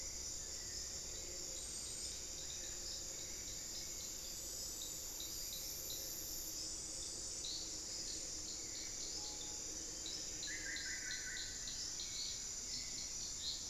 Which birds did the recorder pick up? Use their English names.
Screaming Piha, Solitary Black Cacique